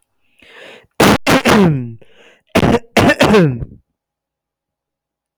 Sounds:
Cough